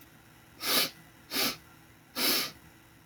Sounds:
Sniff